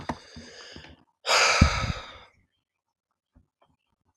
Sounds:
Sigh